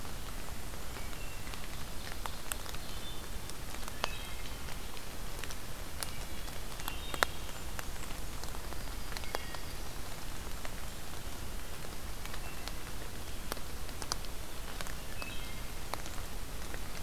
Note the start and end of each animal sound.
[0.77, 1.44] Wood Thrush (Hylocichla mustelina)
[1.65, 3.16] Ovenbird (Seiurus aurocapilla)
[2.76, 4.63] Wood Thrush (Hylocichla mustelina)
[5.90, 6.38] Wood Thrush (Hylocichla mustelina)
[6.67, 7.54] Wood Thrush (Hylocichla mustelina)
[8.73, 10.03] Yellow-rumped Warbler (Setophaga coronata)
[9.07, 9.81] Wood Thrush (Hylocichla mustelina)
[12.14, 12.86] Wood Thrush (Hylocichla mustelina)
[15.10, 15.85] Wood Thrush (Hylocichla mustelina)

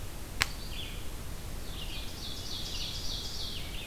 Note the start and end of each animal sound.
[0.00, 3.87] Red-eyed Vireo (Vireo olivaceus)
[1.57, 3.58] Ovenbird (Seiurus aurocapilla)

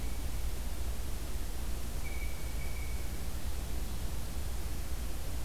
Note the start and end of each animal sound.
[1.98, 3.10] Blue Jay (Cyanocitta cristata)

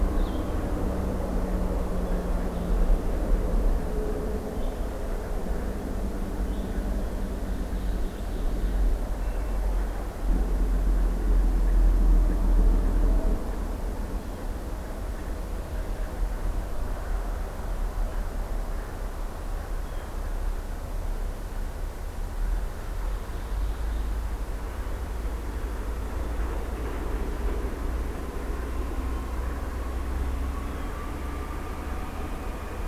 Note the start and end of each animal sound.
[0.00, 6.81] Blue-headed Vireo (Vireo solitarius)
[6.94, 8.79] Ovenbird (Seiurus aurocapilla)
[9.08, 9.96] Hermit Thrush (Catharus guttatus)
[14.08, 14.47] Blue Jay (Cyanocitta cristata)
[19.84, 20.09] Blue Jay (Cyanocitta cristata)
[22.70, 24.16] Ovenbird (Seiurus aurocapilla)

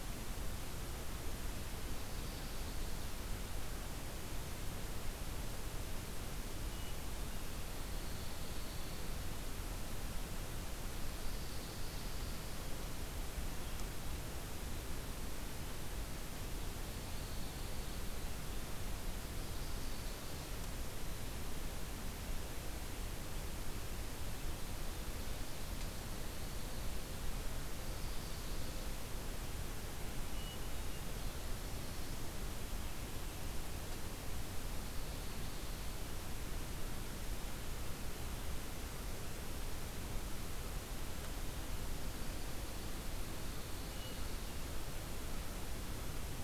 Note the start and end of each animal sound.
[1.74, 3.11] Chestnut-sided Warbler (Setophaga pensylvanica)
[7.66, 9.12] Pine Warbler (Setophaga pinus)
[11.01, 12.49] Pine Warbler (Setophaga pinus)
[16.87, 18.00] Pine Warbler (Setophaga pinus)
[19.19, 20.26] Chestnut-sided Warbler (Setophaga pensylvanica)
[27.64, 28.89] Chestnut-sided Warbler (Setophaga pensylvanica)
[30.17, 31.03] Hermit Thrush (Catharus guttatus)
[34.37, 36.04] Pine Warbler (Setophaga pinus)
[42.89, 44.34] Pine Warbler (Setophaga pinus)

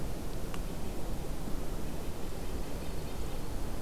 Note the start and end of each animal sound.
[1.88, 3.61] Red-breasted Nuthatch (Sitta canadensis)
[2.41, 3.82] Dark-eyed Junco (Junco hyemalis)

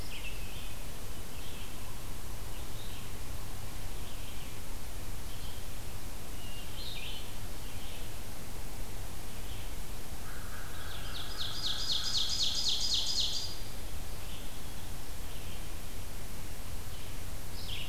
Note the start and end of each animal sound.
[0.00, 0.82] Hermit Thrush (Catharus guttatus)
[0.00, 17.88] Red-eyed Vireo (Vireo olivaceus)
[6.31, 7.30] Hermit Thrush (Catharus guttatus)
[10.03, 12.29] American Crow (Corvus brachyrhynchos)
[10.72, 13.84] Ovenbird (Seiurus aurocapilla)

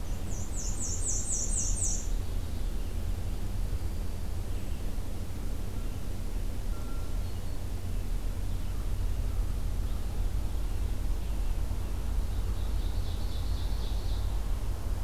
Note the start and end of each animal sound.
[0.00, 2.18] Black-and-white Warbler (Mniotilta varia)
[0.73, 2.78] Ovenbird (Seiurus aurocapilla)
[1.41, 15.04] Red-eyed Vireo (Vireo olivaceus)
[3.23, 4.46] Black-throated Green Warbler (Setophaga virens)
[6.80, 7.61] Black-throated Green Warbler (Setophaga virens)
[8.54, 10.26] American Crow (Corvus brachyrhynchos)
[12.50, 14.33] Ovenbird (Seiurus aurocapilla)

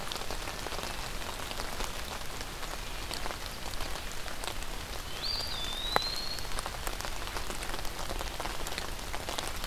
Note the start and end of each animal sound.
[4.88, 6.59] Eastern Wood-Pewee (Contopus virens)

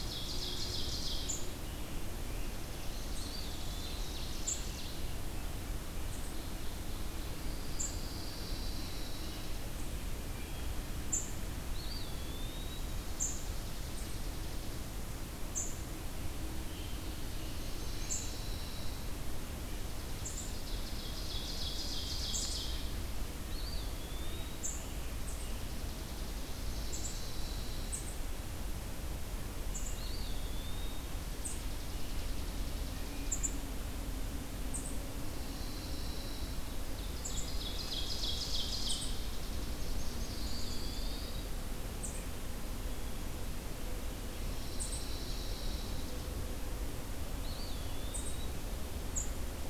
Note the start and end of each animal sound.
[0.00, 1.51] Ovenbird (Seiurus aurocapilla)
[0.00, 49.58] unidentified call
[2.29, 4.42] Chipping Sparrow (Spizella passerina)
[2.92, 4.25] Eastern Wood-Pewee (Contopus virens)
[3.04, 5.22] Ovenbird (Seiurus aurocapilla)
[6.22, 7.34] Ovenbird (Seiurus aurocapilla)
[7.39, 9.69] Pine Warbler (Setophaga pinus)
[10.13, 10.83] Hermit Thrush (Catharus guttatus)
[11.61, 13.06] Eastern Wood-Pewee (Contopus virens)
[13.04, 14.88] Chipping Sparrow (Spizella passerina)
[16.91, 19.30] Pine Warbler (Setophaga pinus)
[19.83, 23.00] Ovenbird (Seiurus aurocapilla)
[23.32, 24.69] Eastern Wood-Pewee (Contopus virens)
[25.09, 26.86] Chipping Sparrow (Spizella passerina)
[26.63, 28.12] Pine Warbler (Setophaga pinus)
[29.78, 31.33] Eastern Wood-Pewee (Contopus virens)
[31.37, 33.30] Chipping Sparrow (Spizella passerina)
[35.20, 36.78] Pine Warbler (Setophaga pinus)
[36.72, 39.23] Ovenbird (Seiurus aurocapilla)
[39.03, 40.11] Chipping Sparrow (Spizella passerina)
[39.98, 41.63] Pine Warbler (Setophaga pinus)
[40.06, 41.92] Eastern Wood-Pewee (Contopus virens)
[44.19, 46.36] Pine Warbler (Setophaga pinus)
[47.10, 48.77] Eastern Wood-Pewee (Contopus virens)

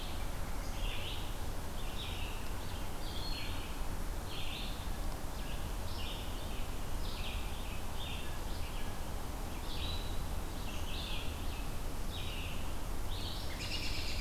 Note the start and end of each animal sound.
[0.00, 14.20] Red-eyed Vireo (Vireo olivaceus)
[13.30, 14.20] American Robin (Turdus migratorius)

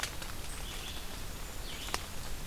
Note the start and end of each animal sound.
[0.00, 2.46] Red-eyed Vireo (Vireo olivaceus)

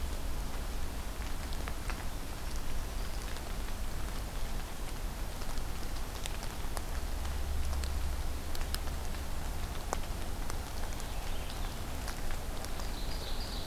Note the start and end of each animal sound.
[2.27, 3.31] Black-throated Green Warbler (Setophaga virens)
[10.71, 11.81] Purple Finch (Haemorhous purpureus)
[12.74, 13.66] Ovenbird (Seiurus aurocapilla)

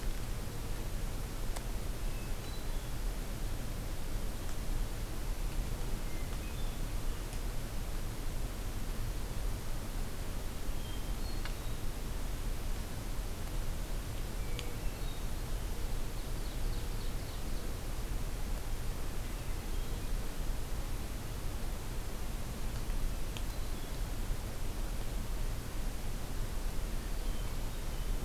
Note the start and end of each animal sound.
[2.09, 2.89] Hermit Thrush (Catharus guttatus)
[6.01, 6.81] Hermit Thrush (Catharus guttatus)
[10.70, 11.78] Hermit Thrush (Catharus guttatus)
[14.36, 15.33] Hermit Thrush (Catharus guttatus)
[16.00, 17.62] Ovenbird (Seiurus aurocapilla)
[19.06, 20.17] Hermit Thrush (Catharus guttatus)
[23.14, 24.46] Hermit Thrush (Catharus guttatus)
[27.07, 28.25] Hermit Thrush (Catharus guttatus)

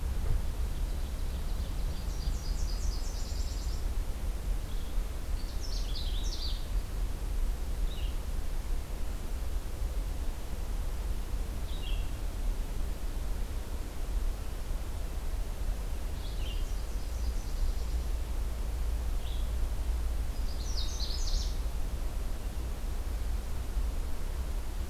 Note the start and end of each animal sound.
[0.14, 2.18] Ovenbird (Seiurus aurocapilla)
[1.94, 3.90] Nashville Warbler (Leiothlypis ruficapilla)
[4.58, 19.46] Red-eyed Vireo (Vireo olivaceus)
[5.14, 6.82] Canada Warbler (Cardellina canadensis)
[16.11, 18.22] Nashville Warbler (Leiothlypis ruficapilla)
[20.13, 21.78] Canada Warbler (Cardellina canadensis)

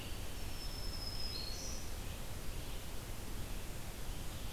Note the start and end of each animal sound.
[0.24, 1.93] Black-throated Green Warbler (Setophaga virens)
[1.81, 4.52] Red-eyed Vireo (Vireo olivaceus)

